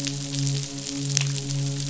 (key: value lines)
label: biophony, midshipman
recorder: SoundTrap 500